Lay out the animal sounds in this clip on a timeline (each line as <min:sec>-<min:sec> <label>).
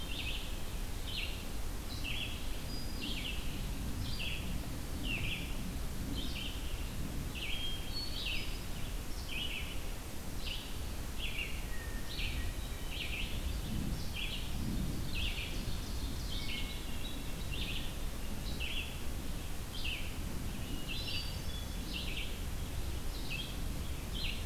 0:00.0-0:24.5 Red-eyed Vireo (Vireo olivaceus)
0:02.5-0:03.3 Hermit Thrush (Catharus guttatus)
0:07.4-0:08.7 Hermit Thrush (Catharus guttatus)
0:11.3-0:12.8 Hermit Thrush (Catharus guttatus)
0:14.7-0:16.6 Ovenbird (Seiurus aurocapilla)
0:16.2-0:17.4 Hermit Thrush (Catharus guttatus)
0:20.5-0:21.8 Hermit Thrush (Catharus guttatus)